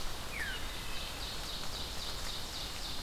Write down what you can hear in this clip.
Veery, Wood Thrush, Ovenbird